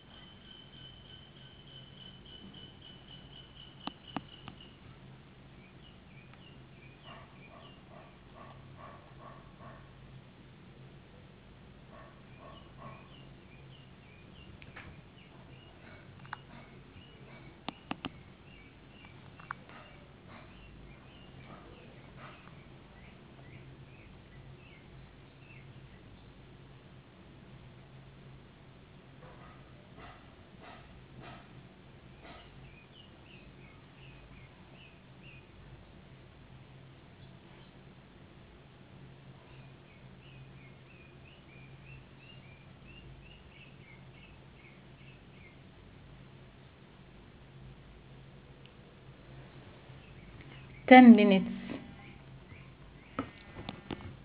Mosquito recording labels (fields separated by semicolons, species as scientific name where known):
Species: no mosquito; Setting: insect culture